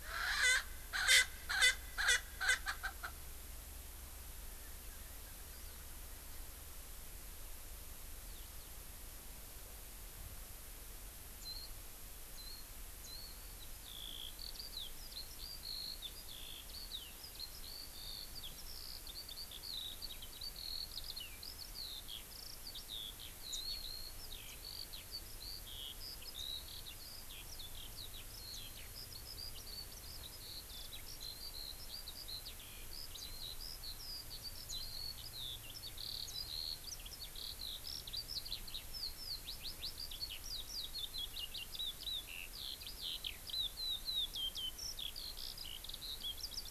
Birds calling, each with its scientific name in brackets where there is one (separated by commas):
Erckel's Francolin (Pternistis erckelii), Eurasian Skylark (Alauda arvensis), Warbling White-eye (Zosterops japonicus)